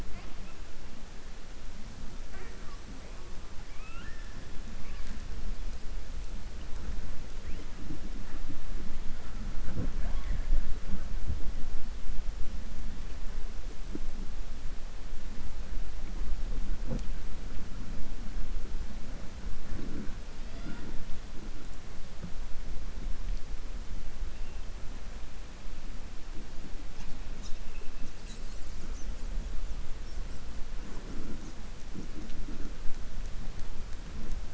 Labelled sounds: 3.6	4.3	killer whale, southern resident, 1.2 to 3.2 kHz

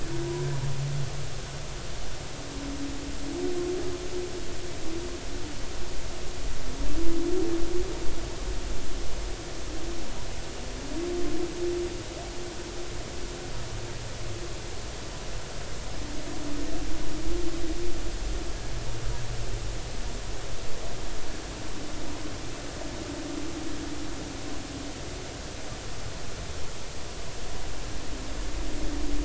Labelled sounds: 0.2	0.5	humpback whale, 0.93 to 1.0 kHz

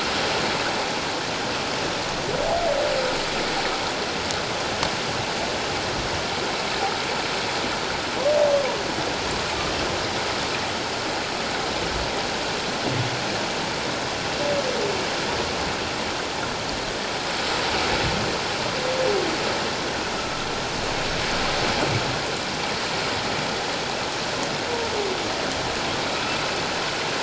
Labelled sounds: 26.2	26.4	humpback whale, 2.5 to 2.7 kHz

